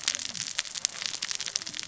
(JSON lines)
{"label": "biophony, cascading saw", "recorder": "SoundTrap 600 or HydroMoth"}